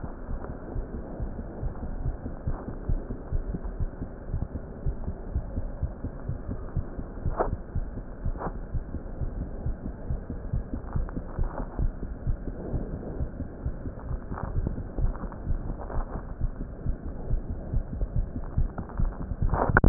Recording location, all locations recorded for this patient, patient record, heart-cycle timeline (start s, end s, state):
aortic valve (AV)
aortic valve (AV)+pulmonary valve (PV)+tricuspid valve (TV)+mitral valve (MV)
#Age: Adolescent
#Sex: Female
#Height: 160.0 cm
#Weight: 46.7 kg
#Pregnancy status: False
#Murmur: Absent
#Murmur locations: nan
#Most audible location: nan
#Systolic murmur timing: nan
#Systolic murmur shape: nan
#Systolic murmur grading: nan
#Systolic murmur pitch: nan
#Systolic murmur quality: nan
#Diastolic murmur timing: nan
#Diastolic murmur shape: nan
#Diastolic murmur grading: nan
#Diastolic murmur pitch: nan
#Diastolic murmur quality: nan
#Outcome: Normal
#Campaign: 2015 screening campaign
0.00	5.16	unannotated
5.16	5.34	diastole
5.34	5.44	S1
5.44	5.58	systole
5.58	5.68	S2
5.68	5.82	diastole
5.82	5.90	S1
5.90	6.00	systole
6.00	6.12	S2
6.12	6.28	diastole
6.28	6.38	S1
6.38	6.50	systole
6.50	6.58	S2
6.58	6.75	diastole
6.75	6.84	S1
6.84	6.95	systole
6.95	7.04	S2
7.04	7.22	diastole
7.22	7.36	S1
7.36	7.48	systole
7.48	7.60	S2
7.60	7.74	diastole
7.74	7.86	S1
7.86	7.96	systole
7.96	8.08	S2
8.08	8.22	diastole
8.22	8.36	S1
8.36	8.45	systole
8.45	8.54	S2
8.54	8.71	diastole
8.71	8.84	S1
8.84	8.93	systole
8.93	9.02	S2
9.02	9.18	diastole
9.18	9.31	S1
9.31	9.37	systole
9.37	9.50	S2
9.50	9.66	diastole
9.66	9.76	S1
9.76	9.82	systole
9.82	9.94	S2
9.94	10.08	diastole
10.08	10.20	S1
10.20	10.31	systole
10.31	10.40	S2
10.40	10.54	diastole
10.54	10.64	S1
10.64	10.74	systole
10.74	10.82	S2
10.82	10.94	diastole
10.94	11.06	S1
11.06	11.15	systole
11.15	11.24	S2
11.24	11.37	diastole
11.37	11.51	S1
11.51	11.56	systole
11.56	11.66	S2
11.66	11.78	diastole
11.78	11.92	S1
11.92	12.01	systole
12.01	12.08	S2
12.08	12.26	diastole
12.26	12.38	S1
12.38	12.48	systole
12.48	12.56	S2
12.56	12.72	diastole
12.72	12.84	S1
12.84	12.91	systole
12.91	12.98	S2
12.98	13.17	diastole
13.17	13.26	S1
13.26	13.37	systole
13.37	13.48	S2
13.48	13.63	diastole
13.63	13.74	S1
13.74	13.83	systole
13.83	13.92	S2
13.92	14.10	diastole
14.10	19.89	unannotated